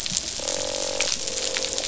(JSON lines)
{"label": "biophony, croak", "recorder": "SoundTrap 500"}